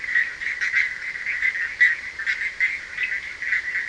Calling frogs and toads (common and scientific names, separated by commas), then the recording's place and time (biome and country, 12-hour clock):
Bischoff's tree frog (Boana bischoffi), Cochran's lime tree frog (Sphaenorhynchus surdus)
Atlantic Forest, Brazil, 2:15am